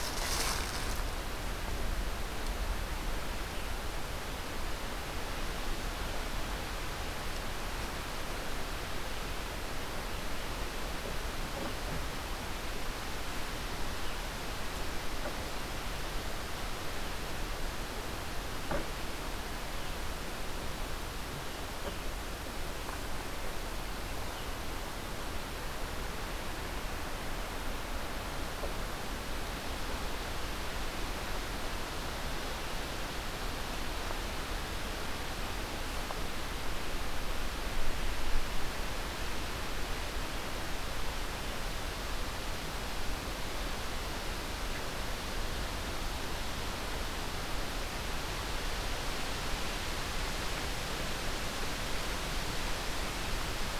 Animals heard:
forest ambience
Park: Katahdin Woods and Waters National Monument